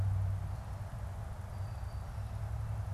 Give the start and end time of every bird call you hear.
[1.35, 2.94] Brown-headed Cowbird (Molothrus ater)

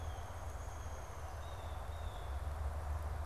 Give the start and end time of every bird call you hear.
[0.00, 1.97] Downy Woodpecker (Dryobates pubescens)
[1.27, 3.26] Blue Jay (Cyanocitta cristata)

